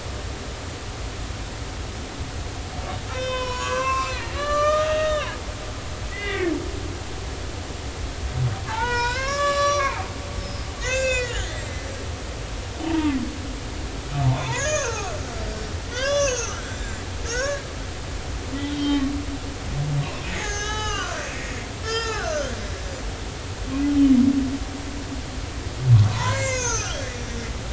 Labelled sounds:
3.1	6.5	humpback whale, 0.93 to 7.4 kHz
8.7	11.9	humpback whale, 0.80 to 7.6 kHz
12.9	13.1	humpback whale, 0.86 to 0.99 kHz
14.2	17.6	humpback whale, 0.80 to 7.6 kHz
18.6	19.1	humpback whale, 1.1 to 3.5 kHz
20.3	21.3	humpback whale, 0.80 to 6.9 kHz
21.8	22.3	humpback whale, 0.80 to 7.1 kHz
26.1	27.0	humpback whale, 0.83 to 7.2 kHz

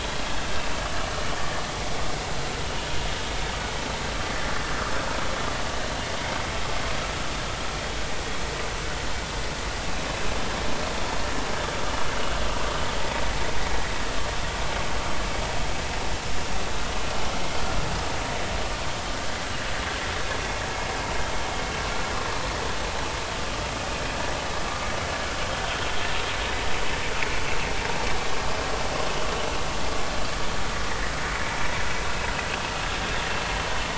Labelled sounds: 1.4	1.6	vessel noise, 1.7 to 1.9 kHz
19.1	19.4	vessel noise, 1.4 to 1.8 kHz
30.9	31.1	vessel noise, 1.7 to 2.0 kHz

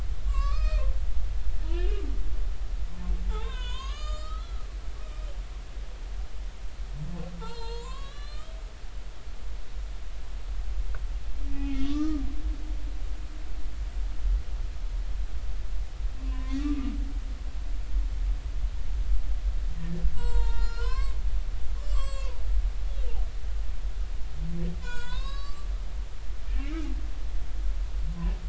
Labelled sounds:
0.3	0.8	humpback whale, 1.0 to 6.3 kHz
1.7	2.0	humpback whale, 2.4 to 3.3 kHz
3.3	4.6	humpback whale, 0.80 to 8.0 kHz
7.4	8.5	humpback whale, 0.83 to 7.6 kHz
11.5	12.2	humpback whale, 1.1 to 3.4 kHz
16.2	17.0	humpback whale, 0.96 to 2.7 kHz
19.8	21.2	humpback whale, 0.86 to 8.0 kHz
21.7	22.4	humpback whale, 0.83 to 7.8 kHz
24.8	25.7	humpback whale, 0.90 to 8.0 kHz
26.5	26.8	humpback whale, 2.1 to 2.5 kHz

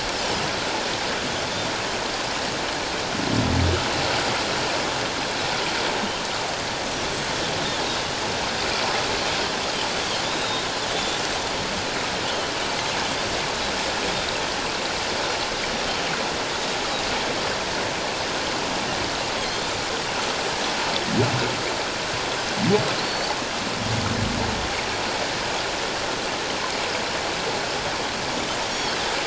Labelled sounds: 10.2	11.2	Pacific white-sided dolphin, 3.4 to 4.0 kHz
12.3	12.5	Pacific white-sided dolphin, 2.8 to 3.2 kHz
23.0	23.3	Pacific white-sided dolphin, 4.3 to 4.8 kHz
28.7	29.0	Pacific white-sided dolphin, 3.1 to 5.7 kHz

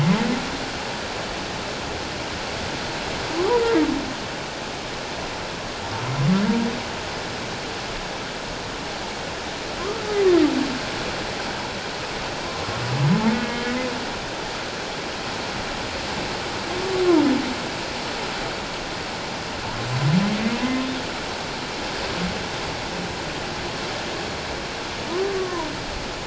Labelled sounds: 3.5	3.8	humpback whale, 0.81 to 1.0 kHz
9.8	10.1	humpback whale, 1.0 to 1.4 kHz
13.4	13.8	humpback whale, 1.6 to 3.2 kHz
25.4	25.7	humpback whale, 0.91 to 1.2 kHz

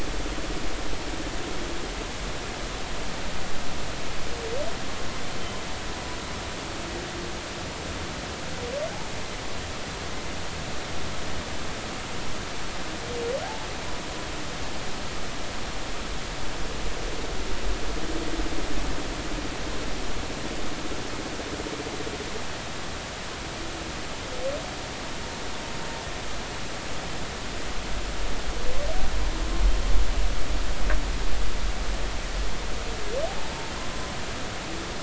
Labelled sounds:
13.4	13.7	humpback whale, 0.80 to 0.93 kHz

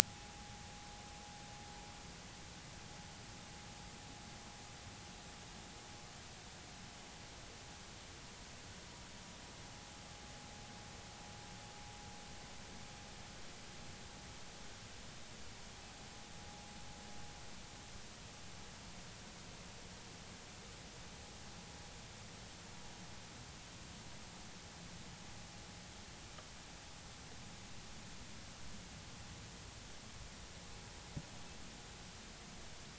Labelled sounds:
1.0	1.7	vessel noise, 0.80 to 0.96 kHz

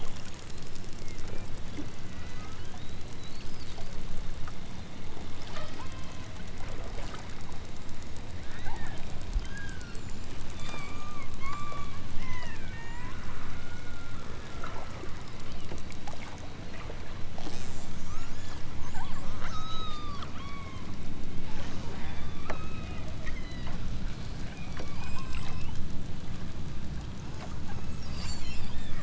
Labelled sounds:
5.4	6.3	killer whale, southern Alaska resident, 0.32 to 6.2 kHz
8.5	10.0	killer whale, southern Alaska resident, 0.32 to 7.2 kHz
10.4	14.2	killer whale, southern Alaska resident, 0.46 to 5.1 kHz
15.3	15.8	killer whale, southern Alaska resident, 1.6 to 4.9 kHz
18.0	18.4	killer whale, southern Alaska resident, 0.74 to 8.0 kHz
18.8	20.9	killer whale, southern Alaska resident, 0.56 to 8.0 kHz
21.9	25.8	killer whale, southern Alaska resident, 0.69 to 8.0 kHz
27.7	28.7	killer whale, southern Alaska resident, 2.3 to 8.0 kHz

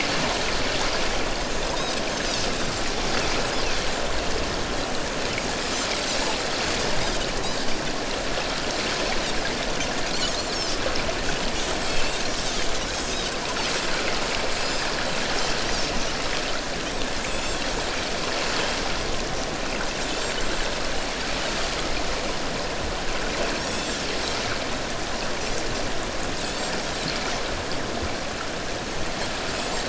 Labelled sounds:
5.7	6.0	Pacific white-sided dolphin, 5.9 to 6.3 kHz
10.5	10.8	Pacific white-sided dolphin, 5.9 to 6.8 kHz
11.9	12.2	Pacific white-sided dolphin, 2.5 to 2.8 kHz
14.6	14.9	Pacific white-sided dolphin, 4.8 to 7.5 kHz
17.3	17.6	Pacific white-sided dolphin, 3.2 to 7.5 kHz
20.1	20.4	Pacific white-sided dolphin, 6.9 to 7.6 kHz
23.6	23.9	Pacific white-sided dolphin, 5.2 to 5.7 kHz
29.6	29.8	Pacific white-sided dolphin, 6.8 to 7.5 kHz

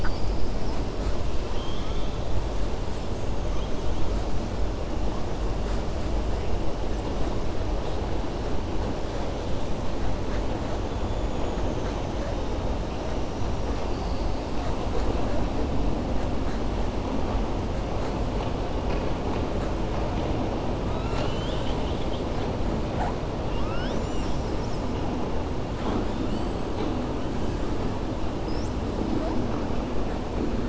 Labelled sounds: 1.4	2.2	killer whale, 1.3 to 4.4 kHz

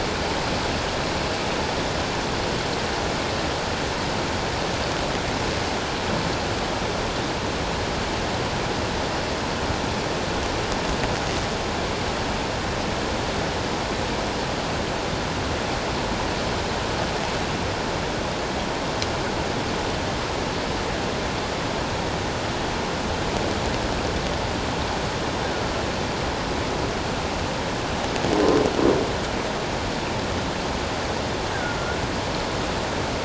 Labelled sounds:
31.5	32.0	killer whale, offshore, call OFF17, 1.3 to 1.7 kHz

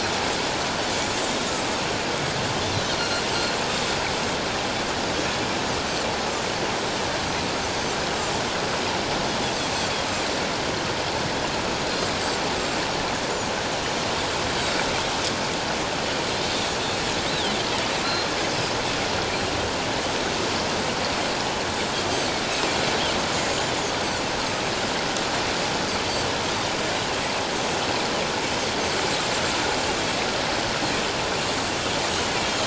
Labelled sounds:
2.7	3.2	Pacific white-sided dolphin, 3.7 to 4.4 kHz
17.3	17.6	Pacific white-sided dolphin, 3.0 to 4.1 kHz
18.0	18.3	Pacific white-sided dolphin, 4.0 to 4.2 kHz
23.3	23.8	Pacific white-sided dolphin, 6.3 to 7.2 kHz
32.4	32.6	Pacific white-sided dolphin, 3.1 to 3.3 kHz

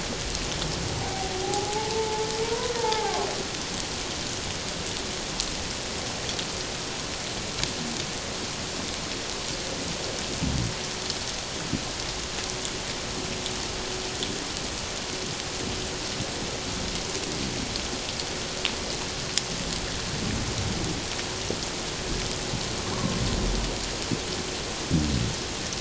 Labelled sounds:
1.0	3.2	humpback whale, 0.78 to 1.1 kHz

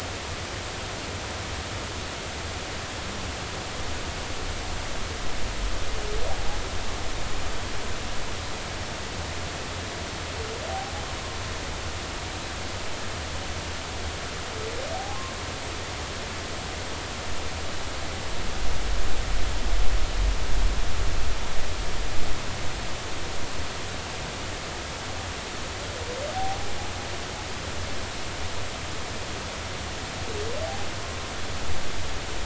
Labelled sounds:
14.9	15.2	humpback whale, 0.80 to 0.93 kHz

